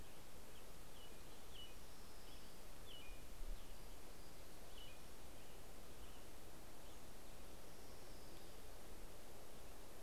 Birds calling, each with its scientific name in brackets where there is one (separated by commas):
Orange-crowned Warbler (Leiothlypis celata), Pacific-slope Flycatcher (Empidonax difficilis), American Robin (Turdus migratorius)